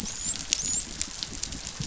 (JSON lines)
{"label": "biophony, dolphin", "recorder": "SoundTrap 500"}